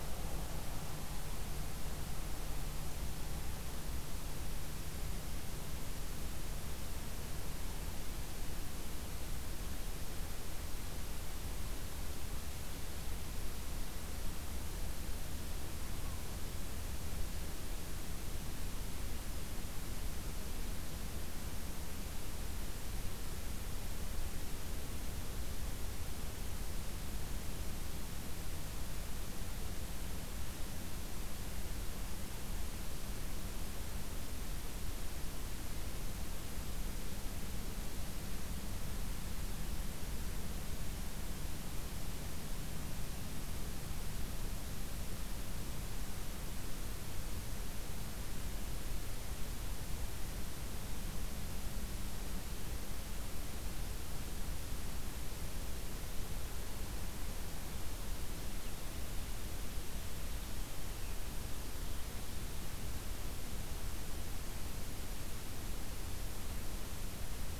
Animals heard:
forest ambience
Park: Acadia National Park